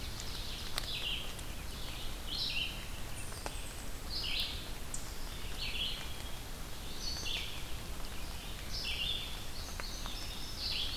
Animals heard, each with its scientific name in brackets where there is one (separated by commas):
Ovenbird (Seiurus aurocapilla), Red-eyed Vireo (Vireo olivaceus), Eastern Chipmunk (Tamias striatus), unidentified call, Indigo Bunting (Passerina cyanea)